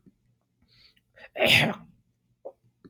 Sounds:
Throat clearing